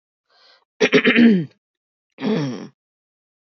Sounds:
Throat clearing